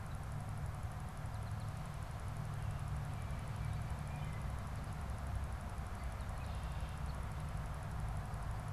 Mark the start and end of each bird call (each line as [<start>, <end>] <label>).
[5.85, 7.15] Red-winged Blackbird (Agelaius phoeniceus)